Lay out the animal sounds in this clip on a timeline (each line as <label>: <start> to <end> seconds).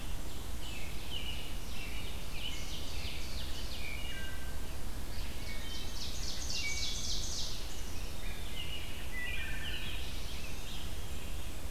Ovenbird (Seiurus aurocapilla): 0.0 to 3.9 seconds
American Robin (Turdus migratorius): 0.5 to 3.6 seconds
Wood Thrush (Hylocichla mustelina): 3.7 to 4.6 seconds
Ovenbird (Seiurus aurocapilla): 5.0 to 7.7 seconds
Wood Thrush (Hylocichla mustelina): 5.3 to 6.1 seconds
Wood Thrush (Hylocichla mustelina): 6.4 to 7.2 seconds
Black-capped Chickadee (Poecile atricapillus): 7.6 to 8.6 seconds
Rose-breasted Grosbeak (Pheucticus ludovicianus): 7.7 to 11.6 seconds
Scarlet Tanager (Piranga olivacea): 8.5 to 11.0 seconds
Wood Thrush (Hylocichla mustelina): 9.0 to 10.0 seconds
Black-throated Blue Warbler (Setophaga caerulescens): 9.5 to 10.8 seconds